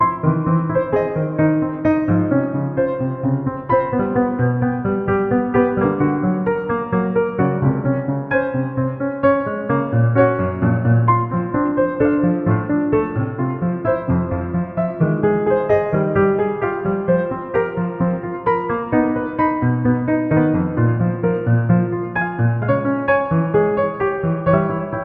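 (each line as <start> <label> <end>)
0.0 Piano notes playing with multiple variations. 25.0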